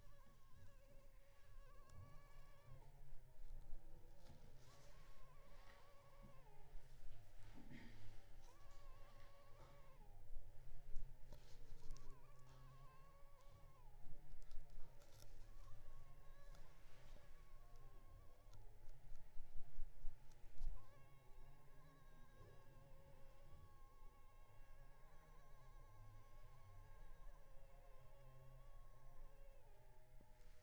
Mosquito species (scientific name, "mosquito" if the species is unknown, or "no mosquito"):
Culex pipiens complex